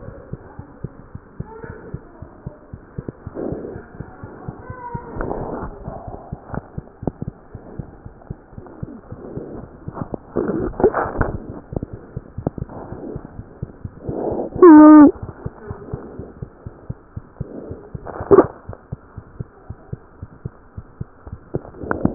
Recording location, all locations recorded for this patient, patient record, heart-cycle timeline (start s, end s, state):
pulmonary valve (PV)
aortic valve (AV)+pulmonary valve (PV)+tricuspid valve (TV)+mitral valve (MV)
#Age: Infant
#Sex: Male
#Height: 70.0 cm
#Weight: 8.45 kg
#Pregnancy status: False
#Murmur: Absent
#Murmur locations: nan
#Most audible location: nan
#Systolic murmur timing: nan
#Systolic murmur shape: nan
#Systolic murmur grading: nan
#Systolic murmur pitch: nan
#Systolic murmur quality: nan
#Diastolic murmur timing: nan
#Diastolic murmur shape: nan
#Diastolic murmur grading: nan
#Diastolic murmur pitch: nan
#Diastolic murmur quality: nan
#Outcome: Abnormal
#Campaign: 2015 screening campaign
0.00	15.42	unannotated
15.42	15.52	S2
15.52	15.68	diastole
15.68	15.78	S1
15.78	15.90	systole
15.90	16.00	S2
16.00	16.16	diastole
16.16	16.26	S1
16.26	16.38	systole
16.38	16.50	S2
16.50	16.66	diastole
16.66	16.74	S1
16.74	16.86	systole
16.86	16.96	S2
16.96	17.14	diastole
17.14	17.24	S1
17.24	17.38	systole
17.38	17.52	S2
17.52	17.68	diastole
17.68	17.78	S1
17.78	17.92	systole
17.92	18.02	S2
18.02	18.18	diastole
18.18	18.31	S1
18.31	18.42	systole
18.42	18.54	S2
18.54	18.70	diastole
18.70	18.80	S1
18.80	18.90	systole
18.90	19.00	S2
19.00	19.18	diastole
19.18	19.26	S1
19.26	19.36	systole
19.36	19.48	S2
19.48	19.68	diastole
19.68	19.78	S1
19.78	19.90	systole
19.90	20.00	S2
20.00	20.20	diastole
20.20	20.30	S1
20.30	20.46	systole
20.46	20.54	S2
20.54	20.76	diastole
20.76	20.86	S1
20.86	20.98	systole
20.98	21.08	S2
21.08	21.28	diastole
21.28	21.40	S1
21.40	21.52	systole
21.52	21.61	S2
21.61	21.70	diastole
21.70	22.14	unannotated